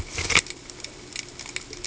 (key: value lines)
label: ambient
recorder: HydroMoth